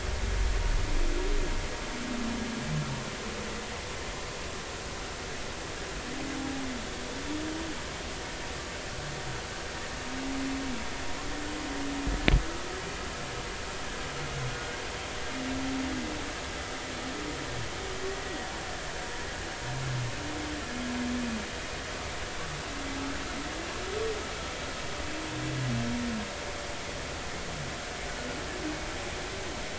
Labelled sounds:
14.5	14.7	humpback whale, 1.4 to 1.5 kHz
18.1	18.5	humpback whale, 1.9 to 2.0 kHz

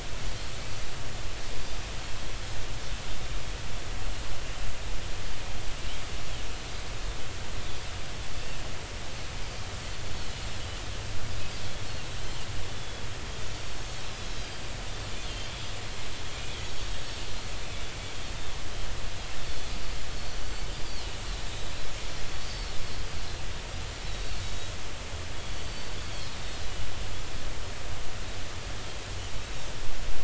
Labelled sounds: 8.4	8.6	Pacific white-sided dolphin, 2.6 to 2.8 kHz
12.7	13.0	Pacific white-sided dolphin, 3.3 to 3.6 kHz
16.6	17.0	Pacific white-sided dolphin, 6.6 to 6.8 kHz
19.5	20.7	Pacific white-sided dolphin, 3.3 to 6.0 kHz
21.5	21.7	Pacific white-sided dolphin, 3.6 to 4.0 kHz
22.4	22.8	Pacific white-sided dolphin, 4.1 to 4.6 kHz
24.0	24.7	Pacific white-sided dolphin, 3.7 to 4.1 kHz
25.5	25.9	Pacific white-sided dolphin, 4.4 to 4.6 kHz
26.3	26.6	Pacific white-sided dolphin, 3.6 to 3.8 kHz

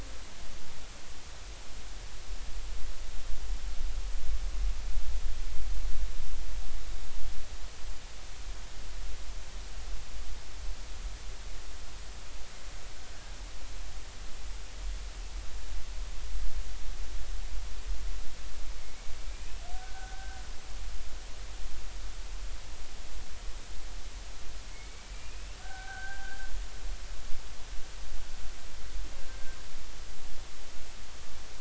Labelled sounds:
19.2	19.5	killer whale, Bigg's (transient), 2.3 to 2.5 kHz
19.7	20.4	killer whale, Bigg's (transient), 1.4 to 1.6 kHz
24.7	26.4	killer whale, Bigg's (transient), 0.80 to 2.8 kHz

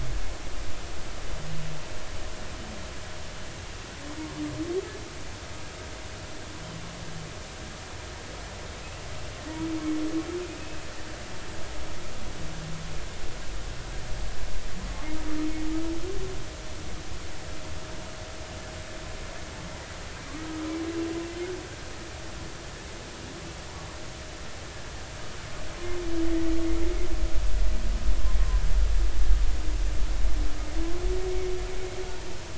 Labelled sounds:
8.8	9.1	humpback whale, 2.5 to 2.8 kHz
10.6	10.8	humpback whale, 2.5 to 2.7 kHz

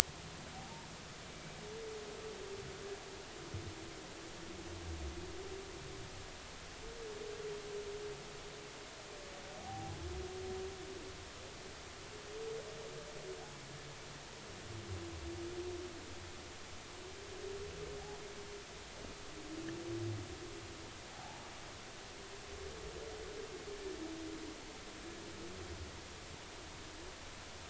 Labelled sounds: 0.5	0.9	humpback whale, 0.80 to 1.0 kHz
9.6	10.0	humpback whale, 0.80 to 0.86 kHz
21.1	21.4	humpback whale, 0.80 to 0.96 kHz

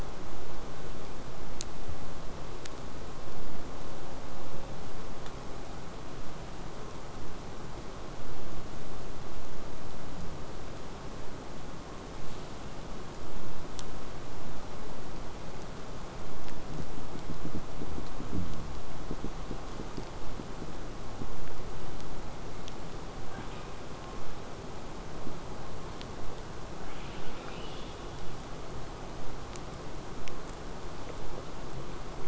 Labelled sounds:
23.2	23.8	killer whale, southern resident, 0.42 to 4.3 kHz
26.8	28.5	killer whale, southern resident, 0.92 to 4.9 kHz

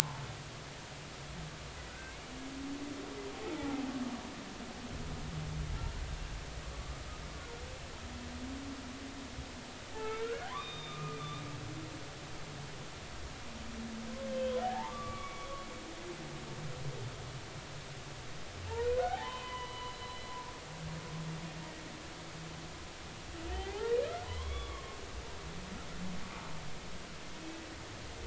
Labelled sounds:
1.9	2.2	humpback whale, 1.4 to 1.6 kHz
3.6	3.9	humpback whale, 0.80 to 0.93 kHz
6.7	7.0	humpback whale, 1.1 to 1.3 kHz
10.0	11.5	humpback whale, 1.0 to 3.8 kHz
14.3	15.7	humpback whale, 0.80 to 3.2 kHz
19.0	20.2	humpback whale, 0.80 to 4.1 kHz
23.5	25.0	humpback whale, 0.80 to 3.5 kHz

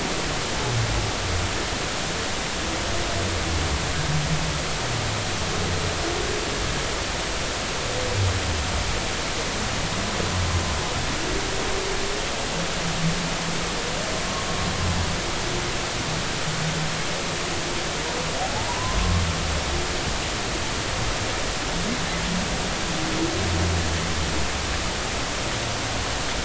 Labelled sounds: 18.7	19.2	humpback whale, 0.90 to 1.2 kHz

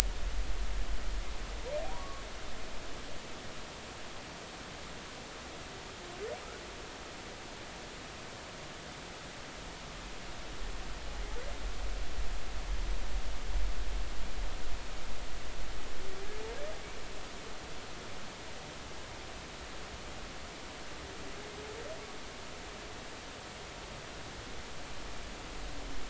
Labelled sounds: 1.8	2.2	humpback whale, 0.80 to 1.2 kHz

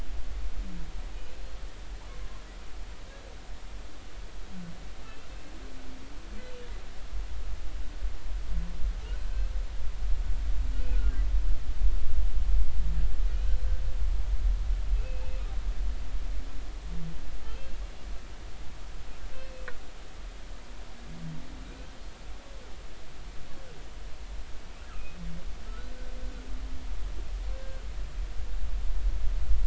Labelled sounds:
5.0	5.3	humpback whale, 2.6 to 2.8 kHz
14.9	15.4	humpback whale, 2.5 to 2.7 kHz
17.4	17.7	humpback whale, 3.0 to 3.2 kHz
19.3	19.6	humpback whale, 2.5 to 2.7 kHz
24.9	25.2	humpback whale, 2.4 to 2.8 kHz
25.7	25.9	humpback whale, 1.2 to 1.5 kHz

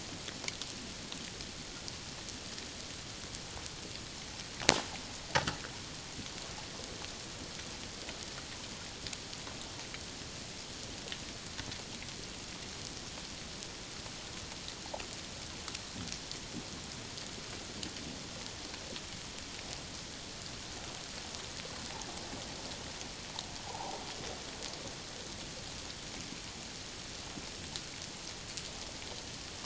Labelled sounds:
23.7	24.0	water noise, 0.78 to 1.0 kHz

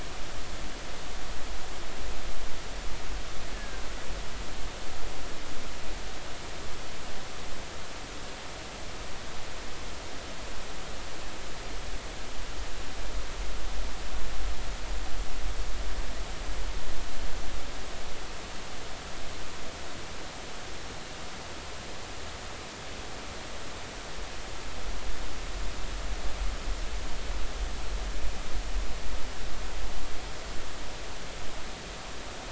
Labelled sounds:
3.5	3.8	killer whale, Bigg's (transient), 1.5 to 1.8 kHz

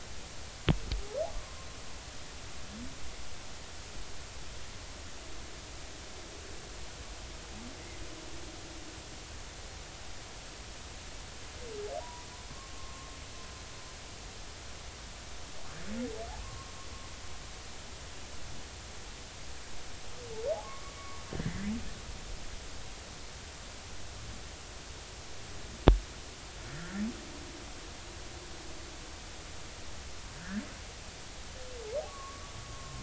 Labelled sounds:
12.0	13.1	humpback whale, 0.86 to 1.2 kHz
16.4	16.7	humpback whale, 1.0 to 1.2 kHz
20.6	21.0	humpback whale, 1.0 to 1.2 kHz
21.4	21.7	humpback whale, 1.6 to 2.1 kHz
26.7	27.0	humpback whale, 1.3 to 1.9 kHz
30.3	30.6	humpback whale, 1.4 to 1.9 kHz
32.1	33.0	humpback whale, 1.0 to 1.2 kHz

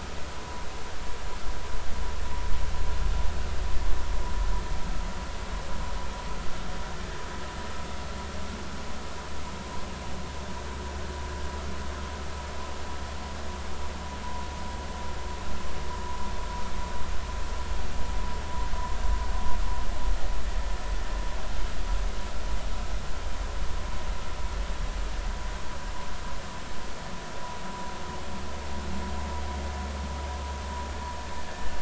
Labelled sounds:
31.5	31.7	vessel noise, 1.6 to 1.9 kHz

